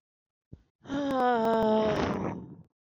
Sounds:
Sigh